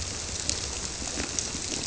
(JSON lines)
{"label": "biophony", "recorder": "SoundTrap 300"}